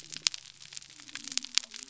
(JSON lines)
{"label": "biophony", "recorder": "SoundTrap 300"}